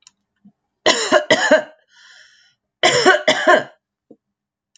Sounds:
Cough